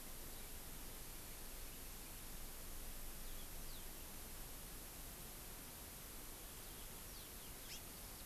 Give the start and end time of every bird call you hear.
[3.20, 3.90] Yellow-fronted Canary (Crithagra mozambica)
[7.60, 7.90] Hawaii Amakihi (Chlorodrepanis virens)

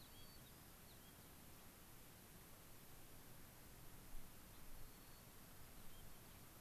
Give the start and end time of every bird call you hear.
[0.00, 1.30] White-crowned Sparrow (Zonotrichia leucophrys)
[4.40, 4.70] Gray-crowned Rosy-Finch (Leucosticte tephrocotis)
[4.70, 6.20] White-crowned Sparrow (Zonotrichia leucophrys)

